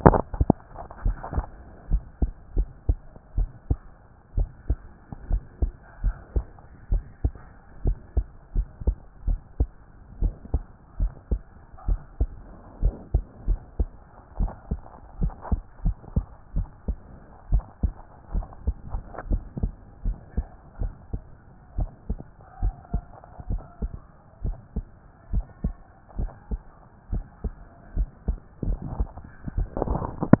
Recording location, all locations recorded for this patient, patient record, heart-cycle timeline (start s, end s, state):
tricuspid valve (TV)
aortic valve (AV)+pulmonary valve (PV)+tricuspid valve (TV)+mitral valve (MV)
#Age: Child
#Sex: Female
#Height: 124.0 cm
#Weight: 25.1 kg
#Pregnancy status: False
#Murmur: Absent
#Murmur locations: nan
#Most audible location: nan
#Systolic murmur timing: nan
#Systolic murmur shape: nan
#Systolic murmur grading: nan
#Systolic murmur pitch: nan
#Systolic murmur quality: nan
#Diastolic murmur timing: nan
#Diastolic murmur shape: nan
#Diastolic murmur grading: nan
#Diastolic murmur pitch: nan
#Diastolic murmur quality: nan
#Outcome: Abnormal
#Campaign: 2014 screening campaign
0.00	0.24	S1
0.24	0.38	systole
0.38	0.56	S2
0.56	1.04	diastole
1.04	1.16	S1
1.16	1.32	systole
1.32	1.46	S2
1.46	1.90	diastole
1.90	2.02	S1
2.02	2.20	systole
2.20	2.30	S2
2.30	2.56	diastole
2.56	2.68	S1
2.68	2.86	systole
2.86	2.98	S2
2.98	3.36	diastole
3.36	3.50	S1
3.50	3.68	systole
3.68	3.78	S2
3.78	4.36	diastole
4.36	4.48	S1
4.48	4.68	systole
4.68	4.78	S2
4.78	5.28	diastole
5.28	5.42	S1
5.42	5.60	systole
5.60	5.72	S2
5.72	6.02	diastole
6.02	6.16	S1
6.16	6.34	systole
6.34	6.46	S2
6.46	6.90	diastole
6.90	7.04	S1
7.04	7.24	systole
7.24	7.34	S2
7.34	7.84	diastole
7.84	7.98	S1
7.98	8.16	systole
8.16	8.26	S2
8.26	8.56	diastole
8.56	8.66	S1
8.66	8.86	systole
8.86	8.96	S2
8.96	9.26	diastole
9.26	9.40	S1
9.40	9.58	systole
9.58	9.70	S2
9.70	10.20	diastole
10.20	10.34	S1
10.34	10.52	systole
10.52	10.64	S2
10.64	11.00	diastole
11.00	11.12	S1
11.12	11.30	systole
11.30	11.40	S2
11.40	11.86	diastole
11.86	12.00	S1
12.00	12.20	systole
12.20	12.32	S2
12.32	12.82	diastole
12.82	12.94	S1
12.94	13.12	systole
13.12	13.26	S2
13.26	13.48	diastole
13.48	13.60	S1
13.60	13.78	systole
13.78	13.90	S2
13.90	14.38	diastole
14.38	14.52	S1
14.52	14.70	systole
14.70	14.80	S2
14.80	15.20	diastole
15.20	15.34	S1
15.34	15.50	systole
15.50	15.60	S2
15.60	15.84	diastole
15.84	15.96	S1
15.96	16.14	systole
16.14	16.24	S2
16.24	16.56	diastole
16.56	16.68	S1
16.68	16.88	systole
16.88	16.98	S2
16.98	17.50	diastole
17.50	17.64	S1
17.64	17.82	systole
17.82	17.94	S2
17.94	18.32	diastole
18.32	18.46	S1
18.46	18.66	systole
18.66	18.76	S2
18.76	19.26	diastole
19.26	19.42	S1
19.42	19.58	systole
19.58	19.72	S2
19.72	20.06	diastole
20.06	20.18	S1
20.18	20.36	systole
20.36	20.46	S2
20.46	20.80	diastole
20.80	20.92	S1
20.92	21.12	systole
21.12	21.22	S2
21.22	21.76	diastole
21.76	21.90	S1
21.90	22.08	systole
22.08	22.18	S2
22.18	22.62	diastole
22.62	22.74	S1
22.74	22.92	systole
22.92	23.02	S2
23.02	23.48	diastole
23.48	23.62	S1
23.62	23.82	systole
23.82	23.92	S2
23.92	24.44	diastole
24.44	24.56	S1
24.56	24.76	systole
24.76	24.86	S2
24.86	25.32	diastole
25.32	25.44	S1
25.44	25.62	systole
25.62	25.74	S2
25.74	26.18	diastole
26.18	26.30	S1
26.30	26.52	systole
26.52	26.62	S2
26.62	27.12	diastole
27.12	27.24	S1
27.24	27.44	systole
27.44	27.54	S2
27.54	27.96	diastole
27.96	28.08	S1
28.08	28.28	systole
28.28	28.38	S2
28.38	28.62	diastole
28.62	28.80	S1
28.80	28.98	systole
28.98	29.08	S2
29.08	29.56	diastole
29.56	29.68	S1
29.68	29.88	systole
29.88	30.08	S2
30.08	30.40	diastole